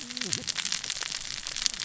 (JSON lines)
{"label": "biophony, cascading saw", "recorder": "SoundTrap 600 or HydroMoth"}